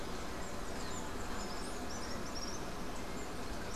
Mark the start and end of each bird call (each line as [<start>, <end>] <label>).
[0.17, 1.07] Yellow-faced Grassquit (Tiaris olivaceus)
[1.27, 3.76] Common Tody-Flycatcher (Todirostrum cinereum)